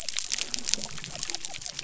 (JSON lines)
{"label": "biophony", "recorder": "SoundTrap 300"}